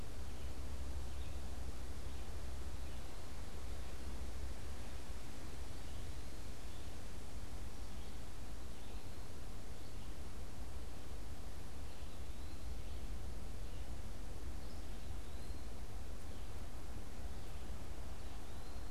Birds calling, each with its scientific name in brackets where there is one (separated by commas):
Eastern Wood-Pewee (Contopus virens), Red-eyed Vireo (Vireo olivaceus)